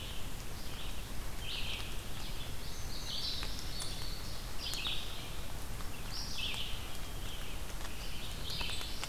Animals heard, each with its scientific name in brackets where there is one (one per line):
Black-throated Blue Warbler (Setophaga caerulescens)
Red-eyed Vireo (Vireo olivaceus)
Indigo Bunting (Passerina cyanea)